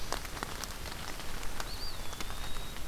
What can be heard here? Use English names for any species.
Eastern Wood-Pewee